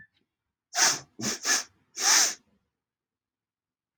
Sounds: Sniff